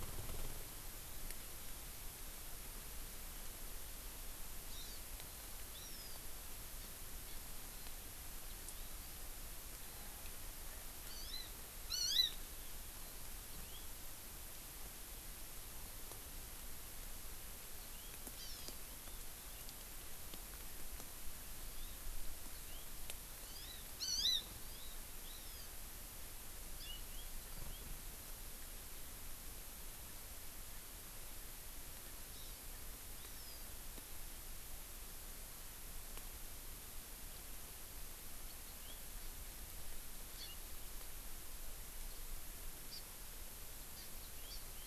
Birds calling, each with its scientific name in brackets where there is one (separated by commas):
House Finch (Haemorhous mexicanus), Hawaii Amakihi (Chlorodrepanis virens), Warbling White-eye (Zosterops japonicus)